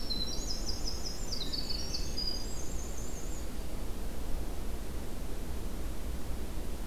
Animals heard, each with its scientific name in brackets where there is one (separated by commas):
Yellow-rumped Warbler (Setophaga coronata), Hermit Thrush (Catharus guttatus), Winter Wren (Troglodytes hiemalis)